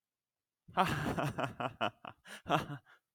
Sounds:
Laughter